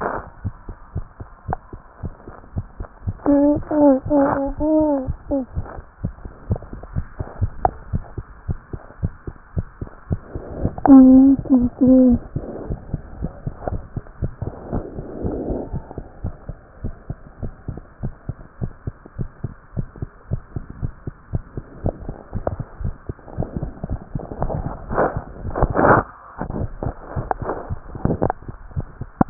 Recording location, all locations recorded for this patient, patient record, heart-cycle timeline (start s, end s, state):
tricuspid valve (TV)
aortic valve (AV)+pulmonary valve (PV)+tricuspid valve (TV)+mitral valve (MV)
#Age: Child
#Sex: Male
#Height: 102.0 cm
#Weight: 18.4 kg
#Pregnancy status: False
#Murmur: Absent
#Murmur locations: nan
#Most audible location: nan
#Systolic murmur timing: nan
#Systolic murmur shape: nan
#Systolic murmur grading: nan
#Systolic murmur pitch: nan
#Systolic murmur quality: nan
#Diastolic murmur timing: nan
#Diastolic murmur shape: nan
#Diastolic murmur grading: nan
#Diastolic murmur pitch: nan
#Diastolic murmur quality: nan
#Outcome: Normal
#Campaign: 2015 screening campaign
0.00	15.70	unannotated
15.70	15.82	S1
15.82	15.94	systole
15.94	16.04	S2
16.04	16.22	diastole
16.22	16.32	S1
16.32	16.46	systole
16.46	16.55	S2
16.55	16.82	diastole
16.82	16.93	S1
16.93	17.06	systole
17.06	17.17	S2
17.17	17.40	diastole
17.40	17.51	S1
17.51	17.65	systole
17.65	17.74	S2
17.74	17.99	diastole
17.99	18.14	S1
18.14	18.26	systole
18.26	18.35	S2
18.35	18.60	diastole
18.60	18.72	S1
18.72	18.83	systole
18.83	18.94	S2
18.94	19.15	diastole
19.15	19.28	S1
19.28	19.41	systole
19.41	19.50	S2
19.50	19.74	diastole
19.74	19.87	S1
19.87	19.97	systole
19.97	20.09	S2
20.09	20.27	diastole
20.27	20.40	S1
20.40	20.53	systole
20.53	20.63	S2
20.63	20.79	diastole
20.79	20.92	S1
20.92	21.03	systole
21.03	21.13	S2
21.13	21.30	diastole
21.30	21.43	S1
21.43	21.55	systole
21.55	21.64	S2
21.64	29.30	unannotated